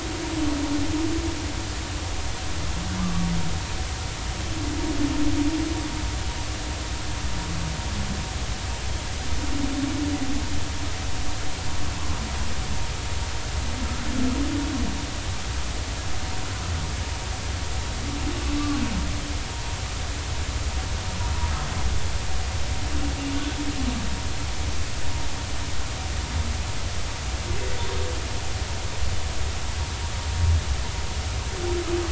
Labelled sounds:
3.0	3.3	humpback whale, 1.1 to 1.3 kHz

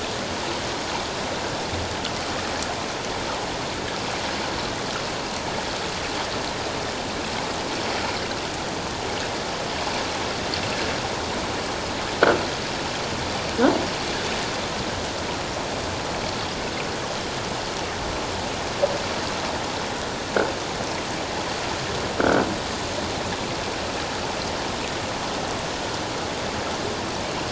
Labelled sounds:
22.2	22.4	croaking sound likely from a nearby submerged object, 1.3 to 1.6 kHz

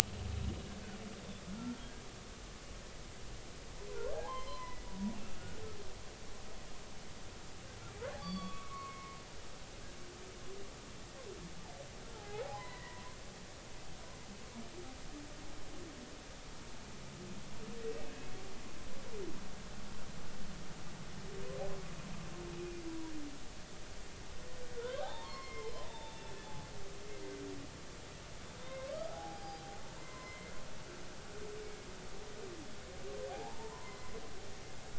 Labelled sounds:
3.9	4.8	humpback whale, 0.80 to 4.2 kHz
8.2	9.2	humpback whale, 1.0 to 4.7 kHz
12.2	13.0	humpback whale, 0.80 to 2.1 kHz
17.9	18.3	humpback whale, 2.5 to 2.7 kHz
22.9	23.1	humpback whale, 0.93 to 1.0 kHz
24.7	26.7	humpback whale, 0.80 to 4.0 kHz
28.6	29.6	humpback whale, 0.80 to 4.9 kHz
30.0	31.5	humpback whale, 0.93 to 2.2 kHz
33.3	34.1	humpback whale, 0.80 to 2.1 kHz

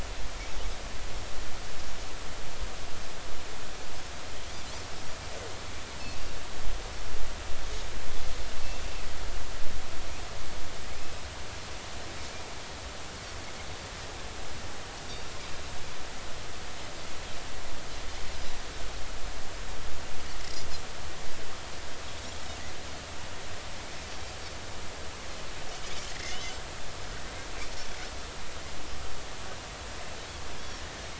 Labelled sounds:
11.0	11.2	Pacific white-sided dolphin, 2.3 to 2.7 kHz
26.2	26.5	Pacific white-sided dolphin, 5.1 to 5.5 kHz

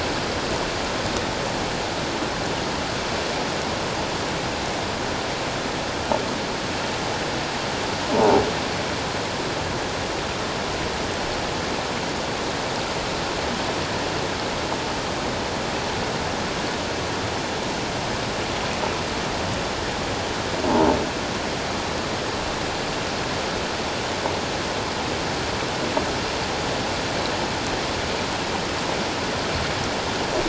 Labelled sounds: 8.1	8.4	croaking sound likely from a nearby submerged object, 0.78 to 1.0 kHz

